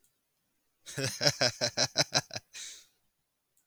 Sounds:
Laughter